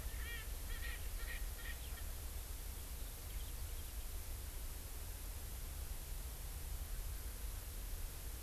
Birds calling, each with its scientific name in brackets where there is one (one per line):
Erckel's Francolin (Pternistis erckelii)